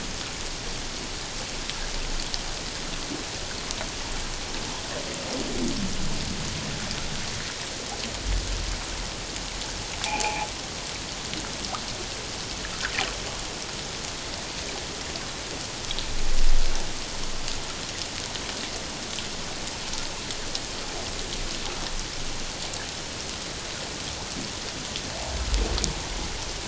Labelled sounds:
10.0	10.5	noise likely from the mooring, 0.78 to 2.7 kHz

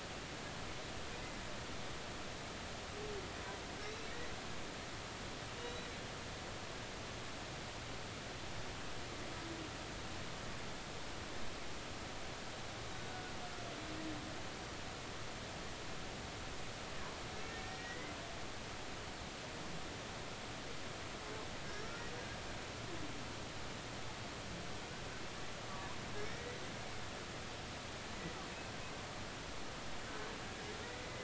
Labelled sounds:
5.6	5.9	humpback whale, 3.8 to 4.0 kHz
13.1	13.3	humpback whale, 1.4 to 1.5 kHz
17.5	18.1	humpback whale, 1.8 to 2.1 kHz
21.7	21.9	humpback whale, 1.6 to 1.9 kHz
26.2	26.6	humpback whale, 1.8 to 5.7 kHz

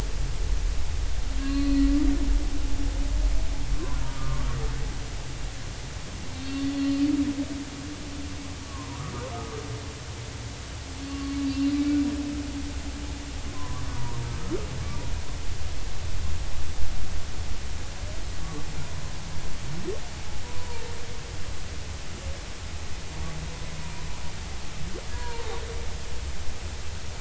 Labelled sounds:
1.4	1.9	humpback whale, 1.0 to 4.5 kHz
6.4	6.8	humpback whale, 4.3 to 4.5 kHz
8.7	9.0	humpback whale, 0.93 to 1.2 kHz
11.1	11.7	humpback whale, 1.1 to 2.8 kHz
13.5	14.2	humpback whale, 0.90 to 1.2 kHz
20.5	20.9	humpback whale, 0.86 to 1.0 kHz
25.1	25.6	humpback whale, 0.80 to 1.8 kHz

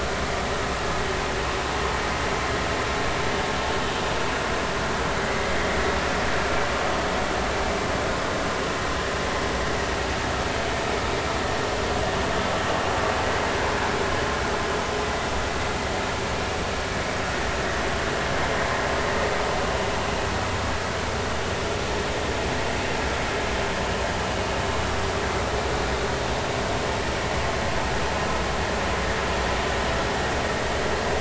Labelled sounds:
5.2	5.5	vessel noise, 1.9 to 2.1 kHz
15.0	15.3	vessel noise, 1.9 to 2.0 kHz

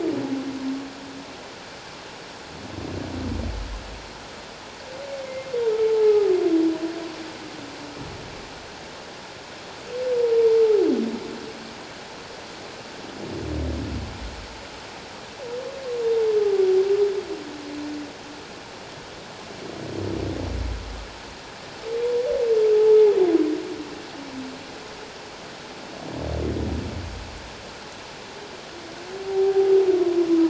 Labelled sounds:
5.2	5.5	humpback whale, 2.0 to 2.2 kHz
5.9	6.3	humpback whale, 0.78 to 1.3 kHz
29.2	29.7	humpback whale, 0.78 to 0.91 kHz

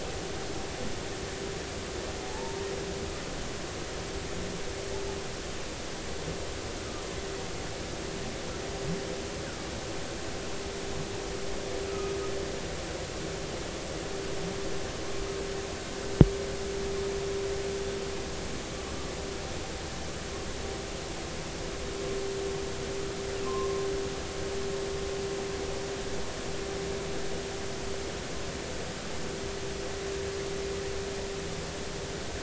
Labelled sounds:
2.3	2.7	humpback whale, 0.83 to 0.99 kHz
11.9	12.1	humpback whale, 1.2 to 1.3 kHz
23.4	23.9	humpback whale, 0.99 to 1.2 kHz

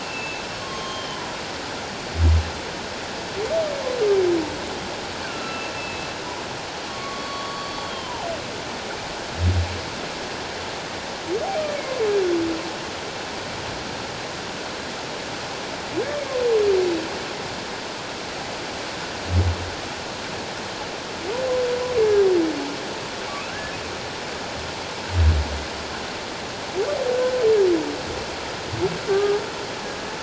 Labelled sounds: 0.0	1.2	humpback whale, 1.0 to 6.4 kHz
5.2	6.1	humpback whale, 1.3 to 2.8 kHz
6.9	8.3	humpback whale, 0.78 to 4.5 kHz
23.3	23.8	humpback whale, 1.3 to 2.7 kHz
29.1	29.4	humpback whale, 1.1 to 1.7 kHz

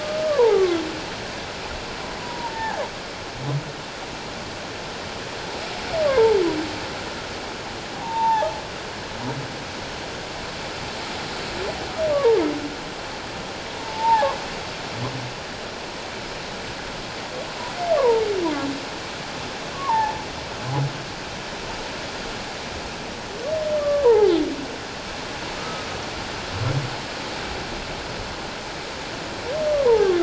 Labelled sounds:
0.0	0.8	humpback whale, 1.0 to 1.3 kHz
2.2	2.8	humpback whale, 0.78 to 1.9 kHz
6.0	6.4	humpback whale, 0.81 to 1.2 kHz
8.0	8.5	humpback whale, 0.78 to 1.8 kHz
13.8	14.3	humpback whale, 0.78 to 0.97 kHz
18.0	18.3	humpback whale, 0.84 to 1.2 kHz
19.7	20.1	humpback whale, 0.78 to 1.2 kHz
23.8	24.3	humpback whale, 0.78 to 1.2 kHz
25.6	25.9	humpback whale, 1.2 to 1.4 kHz
29.7	30.1	humpback whale, 0.78 to 1.2 kHz

